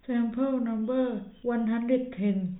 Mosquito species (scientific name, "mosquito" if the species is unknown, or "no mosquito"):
no mosquito